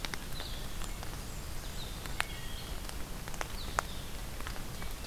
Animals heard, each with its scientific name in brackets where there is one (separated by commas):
Wood Thrush (Hylocichla mustelina), Blue-headed Vireo (Vireo solitarius), Blackburnian Warbler (Setophaga fusca)